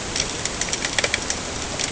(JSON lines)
{"label": "ambient", "recorder": "HydroMoth"}